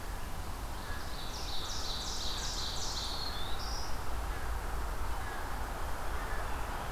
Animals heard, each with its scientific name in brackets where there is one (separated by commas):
American Crow (Corvus brachyrhynchos), Ovenbird (Seiurus aurocapilla), Black-throated Green Warbler (Setophaga virens)